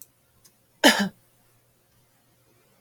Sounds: Cough